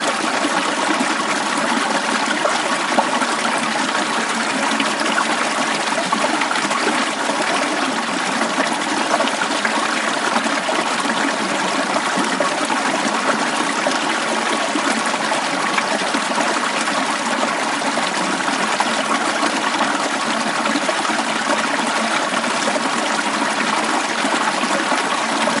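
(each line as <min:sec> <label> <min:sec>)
0:00.0 Water flowing. 0:25.6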